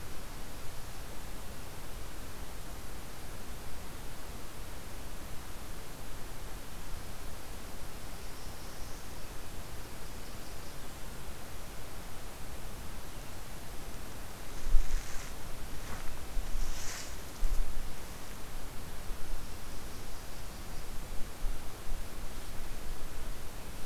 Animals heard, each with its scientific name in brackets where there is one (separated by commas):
Northern Parula (Setophaga americana)